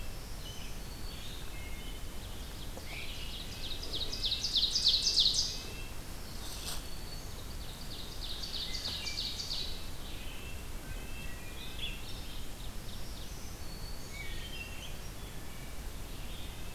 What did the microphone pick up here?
Red-breasted Nuthatch, Black-throated Green Warbler, Ovenbird, Wood Thrush